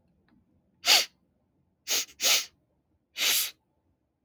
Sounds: Sniff